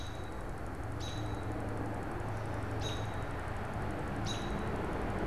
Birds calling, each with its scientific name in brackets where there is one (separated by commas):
American Robin (Turdus migratorius)